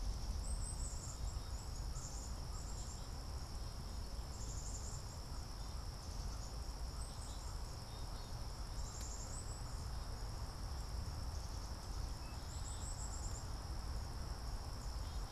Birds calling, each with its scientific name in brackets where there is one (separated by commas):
Black-capped Chickadee (Poecile atricapillus)